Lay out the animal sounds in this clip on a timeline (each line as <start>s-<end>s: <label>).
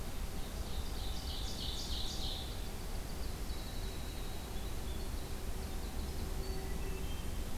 0.0s-2.5s: Ovenbird (Seiurus aurocapilla)
2.5s-6.8s: Winter Wren (Troglodytes hiemalis)
6.4s-7.6s: Hermit Thrush (Catharus guttatus)